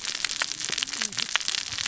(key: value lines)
label: biophony, cascading saw
recorder: SoundTrap 600 or HydroMoth